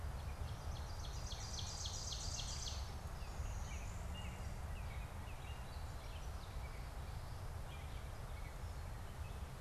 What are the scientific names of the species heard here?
Dumetella carolinensis, Seiurus aurocapilla, Cardinalis cardinalis